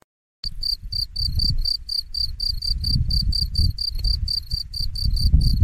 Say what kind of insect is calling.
orthopteran